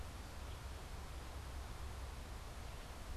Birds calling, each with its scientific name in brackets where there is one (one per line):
Red-eyed Vireo (Vireo olivaceus)